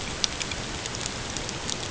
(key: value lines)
label: ambient
recorder: HydroMoth